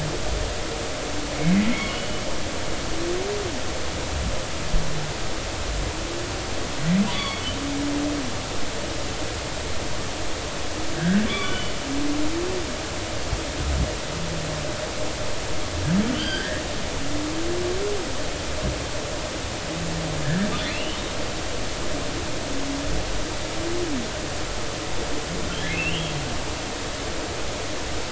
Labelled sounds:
1.4	2.2	humpback whale, 1.9 to 3.0 kHz
7.1	7.4	humpback whale, 1.0 to 4.6 kHz
10.9	11.7	humpback whale, 1.1 to 3.6 kHz
16.1	16.6	humpback whale, 1.4 to 5.0 kHz
20.2	21.0	humpback whale, 1.5 to 3.2 kHz
25.7	26.1	humpback whale, 2.4 to 3.4 kHz

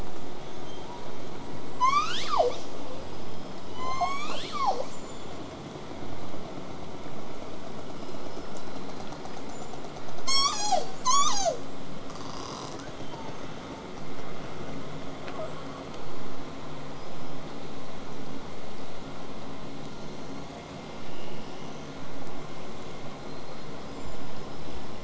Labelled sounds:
0.4	0.9	killer whale, southern resident, 2.9 to 6.7 kHz
2.9	3.7	killer whale, southern resident, 3.0 to 8.0 kHz
3.7	4.9	killer whale, southern resident, call S01, 0.23 to 8.0 kHz
7.7	10.0	killer whale, southern resident, 3.9 to 8.0 kHz
12.8	13.5	killer whale, southern resident, 0.80 to 6.6 kHz
15.3	16.1	killer whale, southern resident, 7.4 to 8.0 kHz
16.9	17.4	killer whale, southern resident, 4.8 to 8.0 kHz
19.9	20.7	killer whale, southern resident, 3.9 to 6.9 kHz
23.2	24.3	killer whale, southern resident, 3.9 to 8.0 kHz

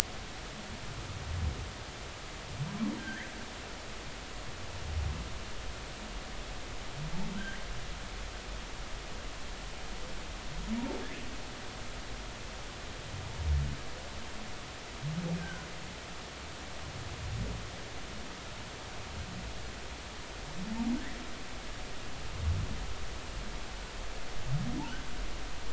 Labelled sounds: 3.0	3.3	humpback whale, 1.5 to 2.2 kHz
15.4	15.7	humpback whale, 1.4 to 1.6 kHz

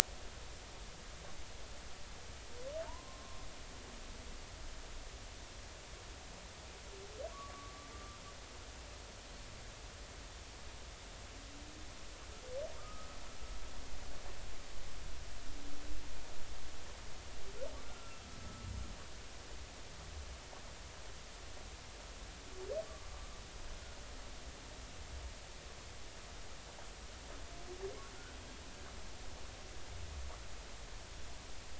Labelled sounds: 2.8	3.5	humpback whale, 0.86 to 1.2 kHz
7.3	8.2	humpback whale, 1.1 to 1.2 kHz
12.8	13.1	humpback whale, 1.1 to 1.4 kHz
17.9	18.7	humpback whale, 1.3 to 1.4 kHz

